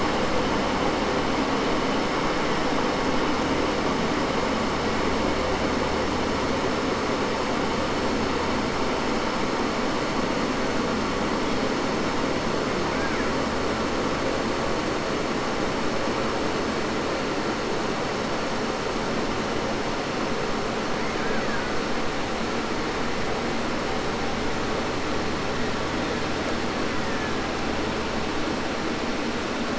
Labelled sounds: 12.9	13.7	killer whale, Bigg's (transient), 0.10 to 3.0 kHz
21.0	21.9	killer whale, Bigg's (transient), call T04, 0.10 to 3.0 kHz
25.4	27.9	killer whale, Bigg's (transient), 0.60 to 2.9 kHz

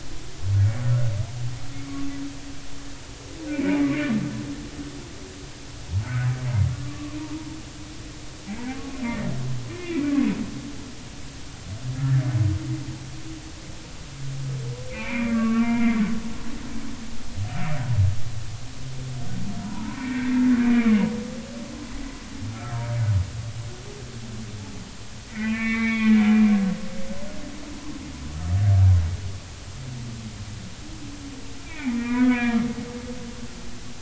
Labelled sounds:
3.5	4.1	humpback whale, 2.0 to 2.5 kHz
6.0	6.3	humpback whale, 1.2 to 1.6 kHz
6.7	7.2	humpback whale, 1.1 to 1.2 kHz
8.7	10.3	humpback whale, 1.0 to 2.5 kHz
12.0	12.2	humpback whale, 1.5 to 1.9 kHz
14.9	16.0	humpback whale, 0.83 to 2.8 kHz
19.6	21.0	humpback whale, 0.86 to 2.5 kHz
22.5	22.8	humpback whale, 1.2 to 1.4 kHz
25.3	26.6	humpback whale, 1.1 to 2.8 kHz
31.6	32.6	humpback whale, 0.80 to 2.7 kHz

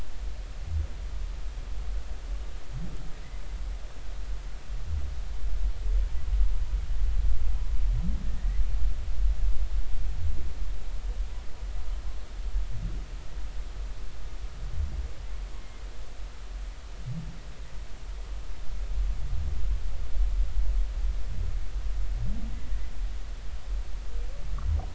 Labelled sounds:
15.6	15.8	humpback whale, 2.0 to 2.2 kHz

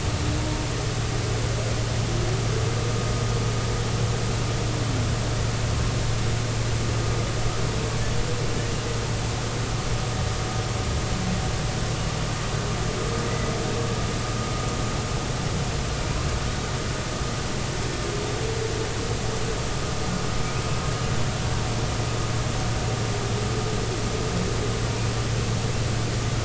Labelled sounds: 13.3	13.5	humpback whale, 1.9 to 2.1 kHz

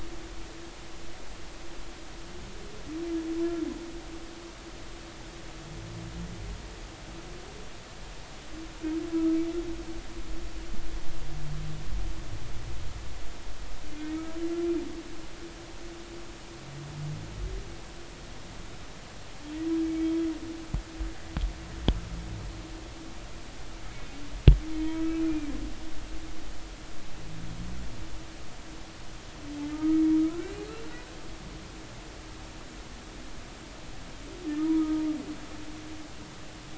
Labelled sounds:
13.9	14.3	humpback whale, 2.1 to 2.3 kHz
19.8	20.1	humpback whale, 2.2 to 2.3 kHz
24.8	25.5	humpback whale, 0.93 to 2.7 kHz
29.7	30.6	humpback whale, 1.2 to 1.6 kHz
34.8	35.0	humpback whale, 1.2 to 1.3 kHz

